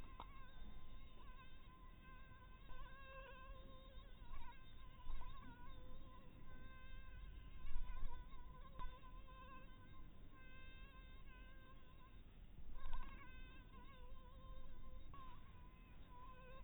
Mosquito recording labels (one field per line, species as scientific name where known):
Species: mosquito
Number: one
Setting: cup